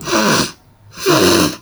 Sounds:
Sniff